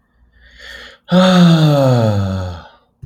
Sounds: Sigh